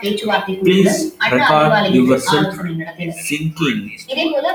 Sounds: Sigh